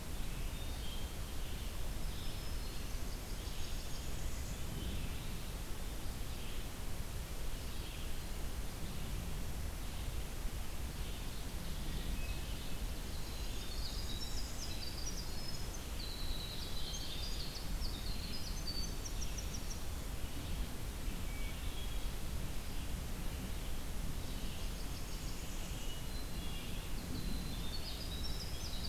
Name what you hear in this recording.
Red-eyed Vireo, Hermit Thrush, Black-throated Green Warbler, Blackburnian Warbler, Winter Wren